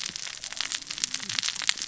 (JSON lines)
{"label": "biophony, cascading saw", "recorder": "SoundTrap 600 or HydroMoth"}